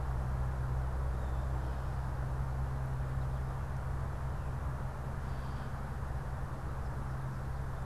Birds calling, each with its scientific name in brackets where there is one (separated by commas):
Gray Catbird (Dumetella carolinensis)